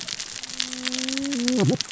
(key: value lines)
label: biophony, cascading saw
recorder: SoundTrap 600 or HydroMoth